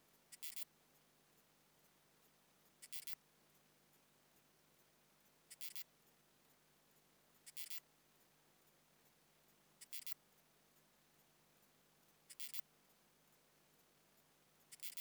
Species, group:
Incertana incerta
Orthoptera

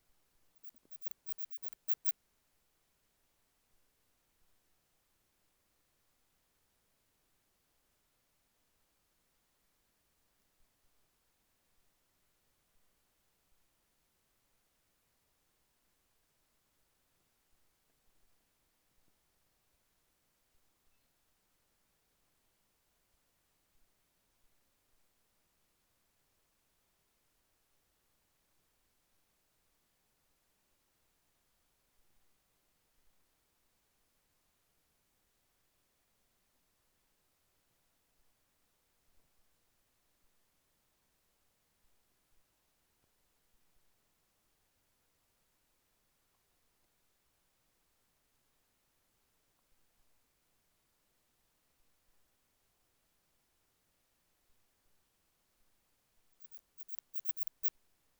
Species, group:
Odontura stenoxypha
Orthoptera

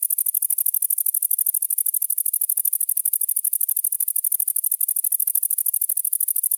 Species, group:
Tettigonia viridissima
Orthoptera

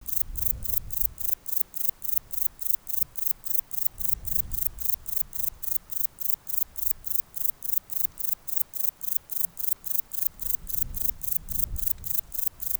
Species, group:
Platycleis albopunctata
Orthoptera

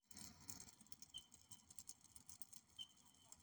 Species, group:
Platypedia putnami
Cicadidae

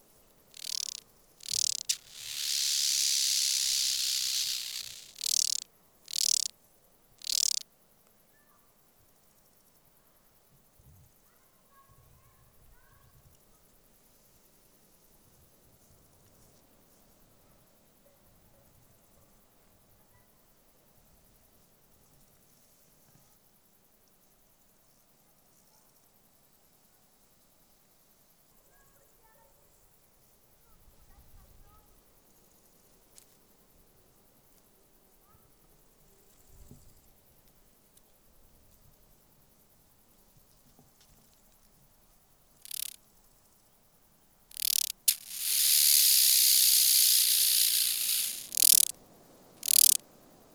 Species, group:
Arcyptera fusca
Orthoptera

